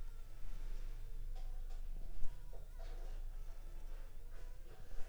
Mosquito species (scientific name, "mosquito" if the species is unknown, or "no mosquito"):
Anopheles funestus s.l.